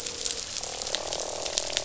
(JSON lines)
{"label": "biophony, croak", "recorder": "SoundTrap 500"}